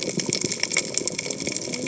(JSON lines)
{"label": "biophony, cascading saw", "recorder": "HydroMoth"}